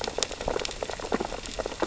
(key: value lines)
label: biophony, sea urchins (Echinidae)
recorder: SoundTrap 600 or HydroMoth